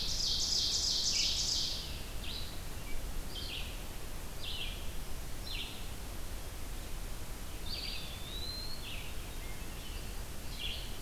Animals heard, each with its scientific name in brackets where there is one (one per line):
Hermit Thrush (Catharus guttatus)
Red-eyed Vireo (Vireo olivaceus)
Eastern Wood-Pewee (Contopus virens)
Ovenbird (Seiurus aurocapilla)